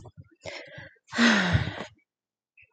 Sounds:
Sigh